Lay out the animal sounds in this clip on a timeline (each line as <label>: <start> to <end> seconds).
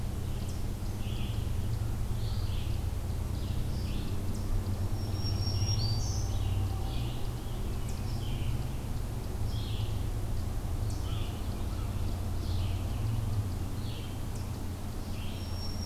Red-eyed Vireo (Vireo olivaceus): 0.0 to 15.9 seconds
Black-throated Green Warbler (Setophaga virens): 4.8 to 6.6 seconds
American Crow (Corvus brachyrhynchos): 10.9 to 12.0 seconds
Black-throated Green Warbler (Setophaga virens): 15.2 to 15.9 seconds